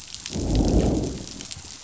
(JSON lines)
{"label": "biophony, growl", "recorder": "SoundTrap 500"}